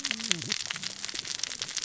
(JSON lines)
{"label": "biophony, cascading saw", "recorder": "SoundTrap 600 or HydroMoth"}